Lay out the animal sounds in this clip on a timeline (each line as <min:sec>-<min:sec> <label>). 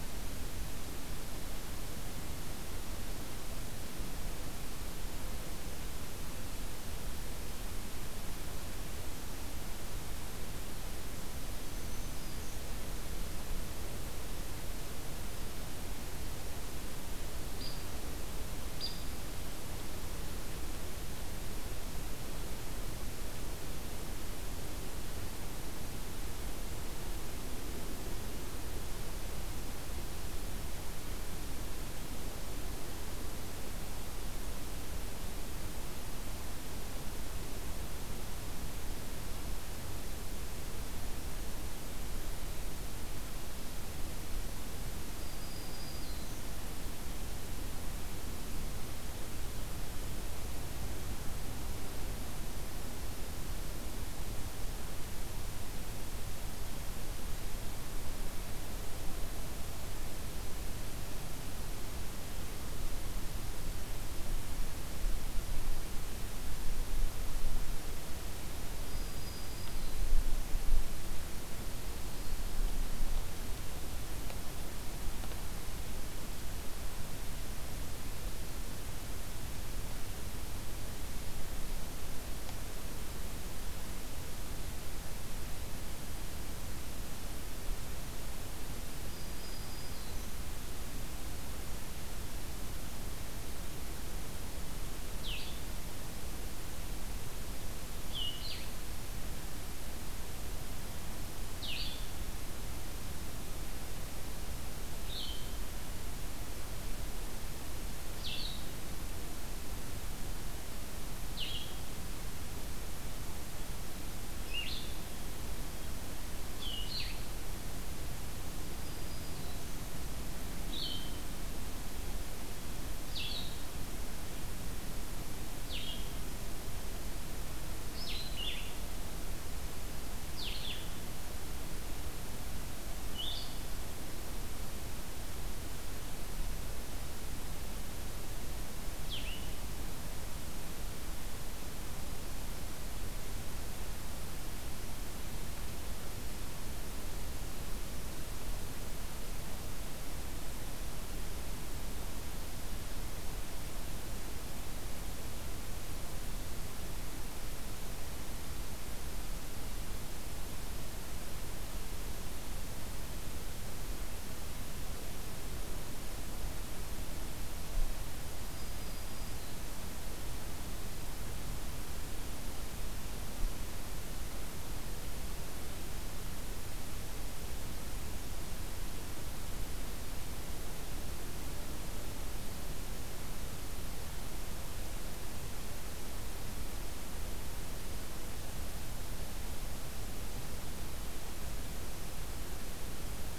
0:11.4-0:12.6 Black-throated Green Warbler (Setophaga virens)
0:17.5-0:17.9 Hairy Woodpecker (Dryobates villosus)
0:18.7-0:19.2 Hairy Woodpecker (Dryobates villosus)
0:45.1-0:46.5 Black-throated Green Warbler (Setophaga virens)
1:08.8-1:10.3 Black-throated Green Warbler (Setophaga virens)
1:29.1-1:30.3 Black-throated Green Warbler (Setophaga virens)
1:35.2-2:01.2 Blue-headed Vireo (Vireo solitarius)
1:58.7-1:59.9 Black-throated Green Warbler (Setophaga virens)
2:03.0-2:13.6 Blue-headed Vireo (Vireo solitarius)
2:19.0-2:19.6 Blue-headed Vireo (Vireo solitarius)
2:48.5-2:49.8 Black-throated Green Warbler (Setophaga virens)